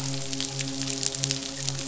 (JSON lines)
{"label": "biophony, midshipman", "recorder": "SoundTrap 500"}